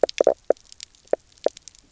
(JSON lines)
{"label": "biophony, knock croak", "recorder": "SoundTrap 300"}